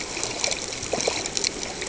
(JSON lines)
{"label": "ambient", "recorder": "HydroMoth"}